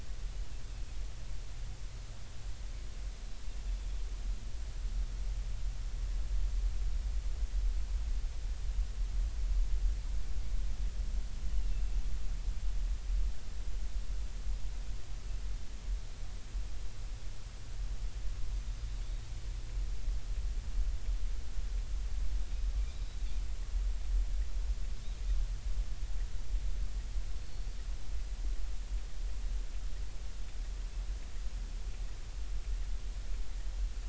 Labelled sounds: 0.7	0.9	Pacific white-sided dolphin, 2.5 to 2.7 kHz

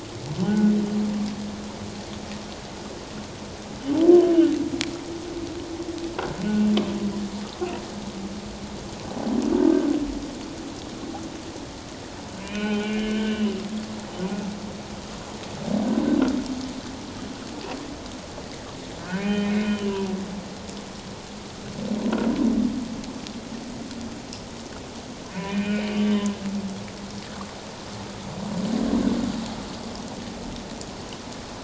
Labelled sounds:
0.4	0.7	humpback whale, 1.4 to 1.6 kHz
6.4	6.7	humpback whale, 2.7 to 2.8 kHz
12.4	13.5	humpback whale, 1.4 to 3.9 kHz
19.1	20.1	humpback whale, 0.88 to 3.2 kHz
25.3	26.3	humpback whale, 1.7 to 3.1 kHz

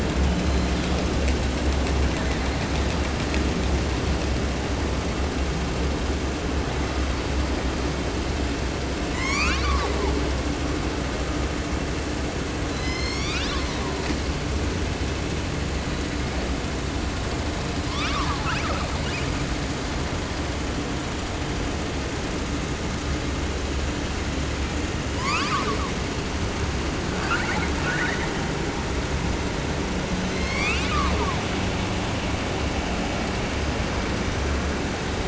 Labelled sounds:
0.1	1.1	killer whale, 0.62 to 7.2 kHz
9.0	10.3	killer whale, 0.27 to 8.0 kHz
12.7	14.0	killer whale, southern resident, 0.30 to 8.0 kHz
15.7	16.6	killer whale, 0.53 to 4.2 kHz
17.8	19.4	killer whale, 0.30 to 8.0 kHz
25.1	26.1	killer whale, southern resident, 0.30 to 8.0 kHz
27.1	28.3	killer whale, 0.62 to 8.0 kHz
30.1	31.4	killer whale, southern resident, 0.30 to 8.0 kHz

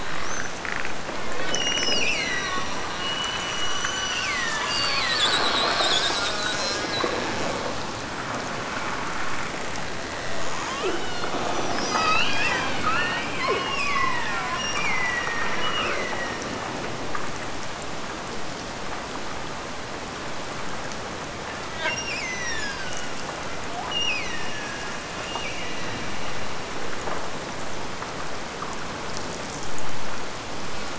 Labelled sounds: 1.5	5.7	killer whale, Bigg's (transient), Gulf of Alaska transient, 1.2 to 8.0 kHz
13.5	16.7	killer whale, Bigg's (transient), Gulf of Alaska transient, 1.7 to 3.0 kHz
21.8	23.2	killer whale, Bigg's (transient), Gulf of Alaska transient, 0.42 to 6.4 kHz
23.9	26.5	killer whale, Bigg's (transient), Gulf of Alaska transient, 1.5 to 5.9 kHz

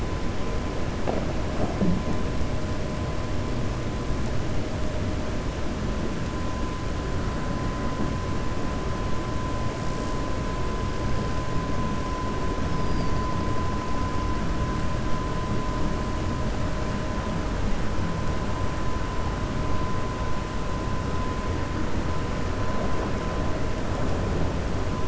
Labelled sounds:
12.7	13.2	killer whale, 4.5 to 5.3 kHz

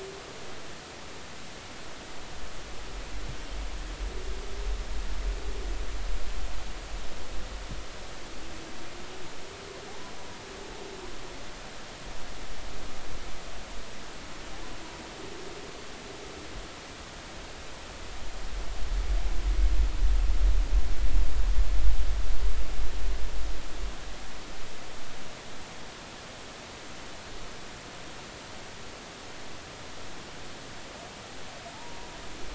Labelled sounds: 9.9	10.1	humpback whale, 0.80 to 1.1 kHz
31.7	32.1	humpback whale, 0.80 to 0.99 kHz

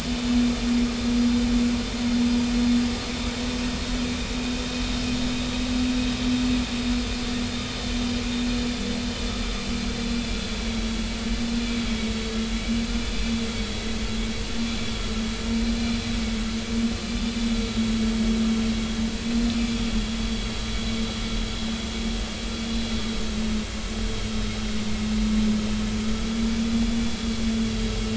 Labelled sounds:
10.3	10.9	vessel noise, 3.2 to 4.1 kHz
19.2	19.8	vessel noise, 2.3 to 4.2 kHz
26.7	27.0	vessel noise, 3.4 to 3.5 kHz

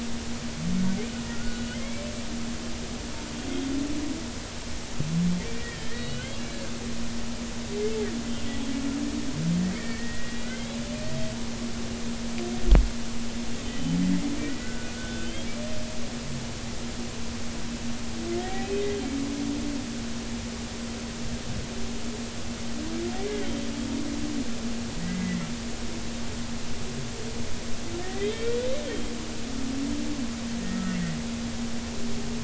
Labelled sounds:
1.3	2.1	humpback whale, 1.3 to 2.4 kHz
5.6	6.9	humpback whale, 1.7 to 4.4 kHz
10.4	11.4	humpback whale, 1.7 to 3.5 kHz
13.6	14.0	humpback whale, 3.0 to 3.1 kHz
14.4	15.5	humpback whale, 1.4 to 3.4 kHz
18.6	18.8	humpback whale, 2.5 to 2.6 kHz
23.1	23.7	humpback whale, 1.8 to 3.2 kHz
25.0	25.4	humpback whale, 1.8 to 2.1 kHz
28.0	28.6	humpback whale, 1.7 to 3.2 kHz
30.7	31.0	humpback whale, 1.2 to 1.4 kHz

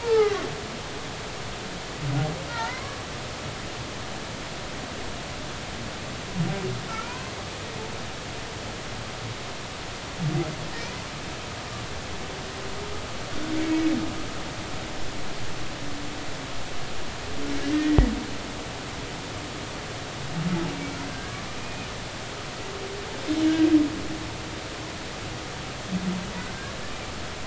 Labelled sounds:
0.0	0.4	humpback whale, 0.80 to 2.2 kHz
2.5	3.1	humpback whale, 0.83 to 2.3 kHz
6.9	7.3	humpback whale, 0.93 to 2.5 kHz
13.5	13.9	humpback whale, 2.2 to 2.3 kHz
21.1	21.9	humpback whale, 1.5 to 2.6 kHz

